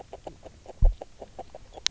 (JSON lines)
{"label": "biophony, grazing", "recorder": "SoundTrap 300"}